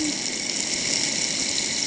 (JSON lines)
{"label": "ambient", "recorder": "HydroMoth"}